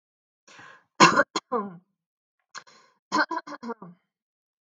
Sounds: Throat clearing